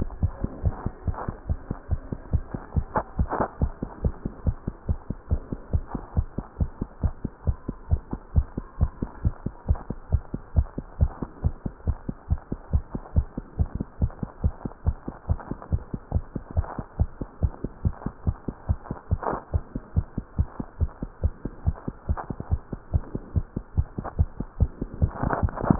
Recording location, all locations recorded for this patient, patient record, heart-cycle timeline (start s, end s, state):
tricuspid valve (TV)
aortic valve (AV)+pulmonary valve (PV)+tricuspid valve (TV)+mitral valve (MV)
#Age: Child
#Sex: Female
#Height: 123.0 cm
#Weight: 20.4 kg
#Pregnancy status: False
#Murmur: Absent
#Murmur locations: nan
#Most audible location: nan
#Systolic murmur timing: nan
#Systolic murmur shape: nan
#Systolic murmur grading: nan
#Systolic murmur pitch: nan
#Systolic murmur quality: nan
#Diastolic murmur timing: nan
#Diastolic murmur shape: nan
#Diastolic murmur grading: nan
#Diastolic murmur pitch: nan
#Diastolic murmur quality: nan
#Outcome: Abnormal
#Campaign: 2015 screening campaign
0.00	1.28	unannotated
1.28	1.36	S2
1.36	1.48	diastole
1.48	1.58	S1
1.58	1.69	systole
1.69	1.76	S2
1.76	1.92	diastole
1.92	2.02	S1
2.02	2.11	systole
2.11	2.20	S2
2.20	2.32	diastole
2.32	2.44	S1
2.44	2.52	systole
2.52	2.62	S2
2.62	2.76	diastole
2.76	2.86	S1
2.86	2.94	systole
2.94	3.04	S2
3.04	3.18	diastole
3.18	3.30	S1
3.30	3.40	systole
3.40	3.48	S2
3.48	3.62	diastole
3.62	3.72	S1
3.72	3.80	systole
3.80	3.88	S2
3.88	4.04	diastole
4.04	4.14	S1
4.14	4.23	systole
4.23	4.32	S2
4.32	4.46	diastole
4.46	4.56	S1
4.56	4.64	systole
4.64	4.74	S2
4.74	4.88	diastole
4.88	4.98	S1
4.98	5.08	systole
5.08	5.16	S2
5.16	5.30	diastole
5.30	5.41	S1
5.41	5.49	systole
5.49	5.58	S2
5.58	5.72	diastole
5.72	5.84	S1
5.84	5.92	systole
5.92	6.01	S2
6.01	6.16	diastole
6.16	6.26	S1
6.26	6.36	systole
6.36	6.45	S2
6.45	6.59	diastole
6.59	6.70	S1
6.70	6.80	systole
6.80	6.88	S2
6.88	7.02	diastole
7.02	7.14	S1
7.14	7.23	systole
7.23	7.32	S2
7.32	7.46	diastole
7.46	7.58	S1
7.58	7.67	systole
7.67	7.76	S2
7.76	7.90	diastole
7.90	8.02	S1
8.02	8.11	systole
8.11	8.20	S2
8.20	8.34	diastole
8.34	8.46	S1
8.46	8.56	systole
8.56	8.66	S2
8.66	8.80	diastole
8.80	8.92	S1
8.92	9.02	systole
9.02	9.10	S2
9.10	9.24	diastole
9.24	9.34	S1
9.34	9.44	systole
9.44	9.54	S2
9.54	9.68	diastole
9.68	9.80	S1
9.80	9.89	systole
9.89	9.98	S2
9.98	10.12	diastole
10.12	10.22	S1
10.22	10.32	systole
10.32	10.40	S2
10.40	10.56	diastole
10.56	10.68	S1
10.68	10.77	systole
10.77	10.86	S2
10.86	10.99	diastole
10.99	11.10	S1
11.10	11.20	systole
11.20	11.28	S2
11.28	11.43	diastole
11.43	11.54	S1
11.54	11.64	systole
11.64	11.71	S2
11.71	11.86	diastole
11.86	11.95	S1
11.95	12.07	systole
12.07	12.12	S2
12.12	12.30	diastole
12.30	12.40	S1
12.40	12.49	systole
12.49	12.58	S2
12.58	12.73	diastole
12.73	12.83	S1
12.83	12.93	systole
12.93	13.02	S2
13.02	13.16	diastole
13.16	13.26	S1
13.26	13.36	systole
13.36	13.42	S2
13.42	13.58	diastole
13.58	13.68	S1
13.68	13.78	systole
13.78	13.86	S2
13.86	14.02	diastole
14.02	14.12	S1
14.12	14.21	systole
14.21	14.30	S2
14.30	14.44	diastole
14.44	14.54	S1
14.54	14.63	systole
14.63	14.70	S2
14.70	14.86	diastole
14.86	14.96	S1
14.96	15.07	systole
15.07	15.13	S2
15.13	15.28	diastole
15.28	15.37	S1
15.37	15.49	systole
15.49	15.56	S2
15.56	15.72	diastole
15.72	15.82	S1
15.82	15.92	systole
15.92	15.99	S2
15.99	16.13	diastole
16.13	16.24	S1
16.24	16.34	systole
16.34	16.42	S2
16.42	16.57	diastole
16.57	16.66	S1
16.66	16.78	systole
16.78	16.84	S2
16.84	17.00	diastole
17.00	17.10	S1
17.10	17.21	systole
17.21	17.27	S2
17.27	17.42	diastole
17.42	17.52	S1
17.52	17.64	systole
17.64	17.72	S2
17.72	17.83	diastole
17.83	17.94	S1
17.94	18.04	systole
18.04	18.10	S2
18.10	18.26	diastole
18.26	18.36	S1
18.36	18.46	systole
18.46	18.53	S2
18.53	18.68	diastole
18.68	18.77	S1
18.77	18.89	systole
18.89	18.95	S2
18.95	19.10	diastole
19.10	19.18	S1
19.18	25.79	unannotated